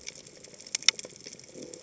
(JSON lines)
{"label": "biophony", "recorder": "HydroMoth"}